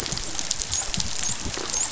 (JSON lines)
{"label": "biophony, dolphin", "recorder": "SoundTrap 500"}